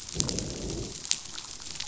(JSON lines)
{"label": "biophony, growl", "recorder": "SoundTrap 500"}